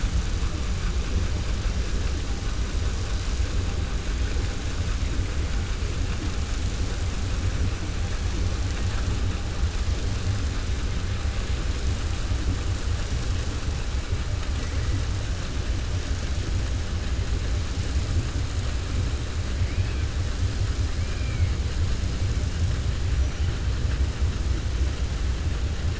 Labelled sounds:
19.6	20.0	killer whale, 2.0 to 3.4 kHz
21.0	21.5	killer whale, 1.5 to 2.9 kHz

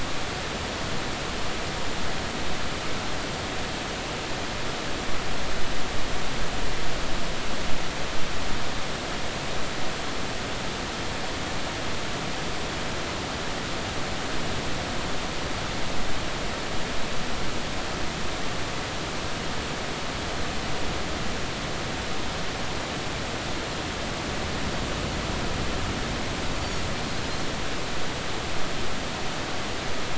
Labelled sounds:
26.6	26.9	Pacific white-sided dolphin, 6.5 to 7.0 kHz

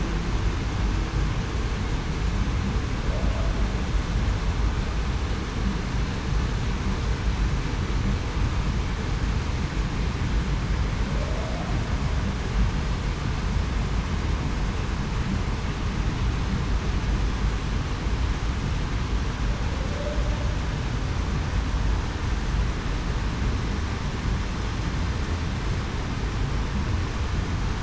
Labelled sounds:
19.9	20.2	humpback whale, 0.54 to 0.63 kHz

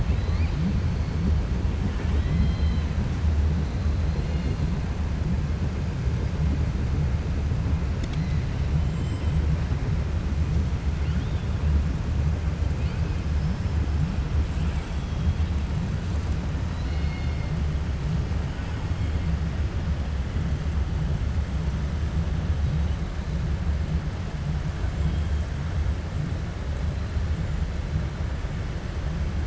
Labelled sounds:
1.8	2.9	killer whale, 1.2 to 4.2 kHz
4.1	4.6	killer whale, 2.1 to 5.0 kHz
14.5	15.5	killer whale, 1.6 to 3.9 kHz
16.6	17.5	killer whale, 2.0 to 5.2 kHz

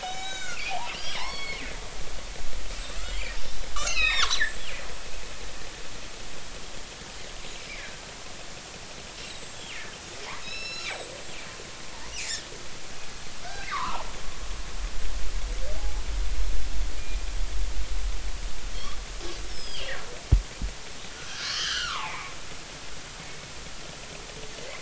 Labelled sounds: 0.0	1.6	killer whale, northern resident, G clan, 0.80 to 7.9 kHz
2.7	4.7	killer whale, northern resident, G clan, 0.90 to 7.8 kHz
7.7	8.0	killer whale, northern resident, G clan, 1.5 to 2.5 kHz
9.2	9.8	killer whale, northern resident, G clan, 2.7 to 7.8 kHz
10.4	11.2	killer whale, northern resident, G clan, 2.5 to 7.8 kHz
12.2	12.4	killer whale, northern resident, G clan, 1.7 to 2.7 kHz
13.4	14.1	killer whale, northern resident, G clan, 0.80 to 1.7 kHz
15.8	16.0	killer whale, northern resident, G clan, 0.80 to 0.90 kHz
17.0	17.2	killer whale, northern resident, G clan, 2.4 to 2.5 kHz
18.7	19.9	killer whale, northern resident, G clan, 2.6 to 8.0 kHz
21.3	22.3	killer whale, northern resident, G clan, 0.80 to 3.4 kHz

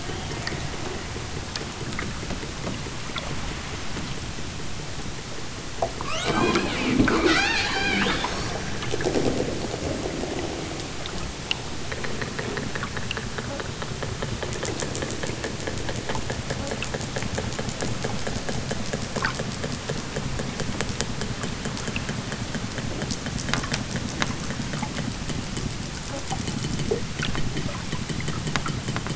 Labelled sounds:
5.9	8.5	killer whale, southern Alaska resident, 0.41 to 8.0 kHz

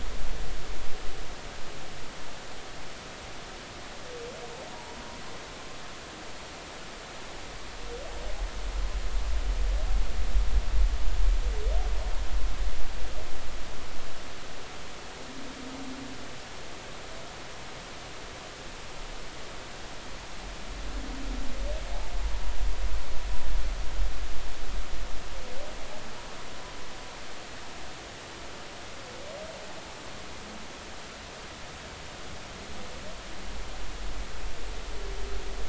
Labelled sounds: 4.7	5.0	humpback whale, 0.83 to 0.99 kHz

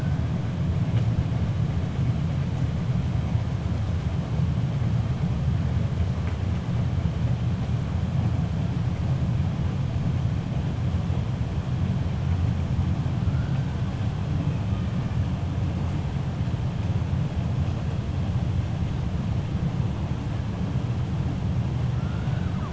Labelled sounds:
21.9	22.7	killer whale, 0.76 to 2.4 kHz

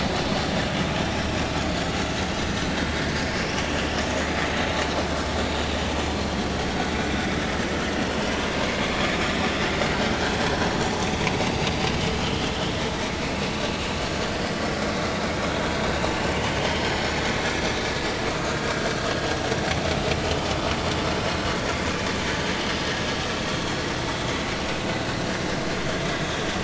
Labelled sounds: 3.1	3.5	vessel noise, 5.2 to 6.5 kHz
12.2	12.5	vessel noise, 2.9 to 3.3 kHz
16.0	16.3	vessel noise, 2.8 to 3.0 kHz

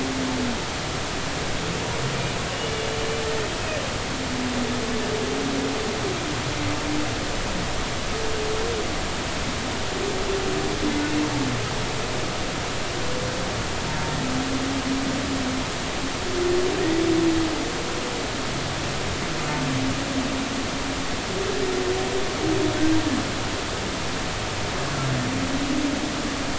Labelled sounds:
2.1	2.4	humpback whale, 2.3 to 2.7 kHz

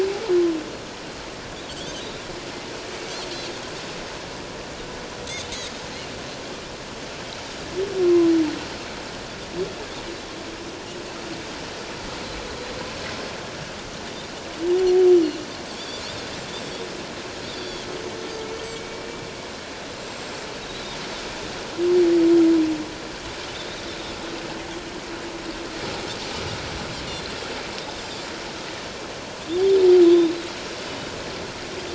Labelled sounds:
1.6	2.0	Pacific white-sided dolphin, 2.9 to 3.7 kHz
8.0	8.3	Pacific white-sided dolphin, 0.97 to 1.1 kHz
15.7	16.0	Pacific white-sided dolphin, 3.2 to 3.7 kHz
17.4	17.9	Pacific white-sided dolphin, 3.3 to 4.8 kHz
19.0	19.2	humpback whale, 2.3 to 2.4 kHz
19.9	20.9	Pacific white-sided dolphin, 3.7 to 7.6 kHz
28.0	28.3	Pacific white-sided dolphin, 4.6 to 7.5 kHz

